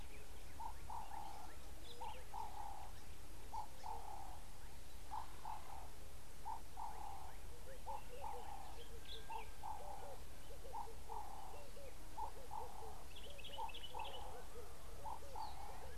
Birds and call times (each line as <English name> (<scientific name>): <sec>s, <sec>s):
Ring-necked Dove (Streptopelia capicola): 1.1s, 5.4s
Red-eyed Dove (Streptopelia semitorquata): 10.6s
Common Bulbul (Pycnonotus barbatus): 13.6s